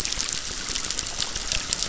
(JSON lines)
{"label": "biophony, crackle", "recorder": "SoundTrap 600"}